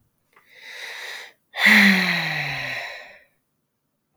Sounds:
Sigh